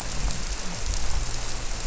{"label": "biophony", "recorder": "SoundTrap 300"}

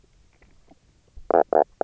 {"label": "biophony, knock croak", "recorder": "SoundTrap 300"}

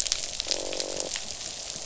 {"label": "biophony, croak", "recorder": "SoundTrap 500"}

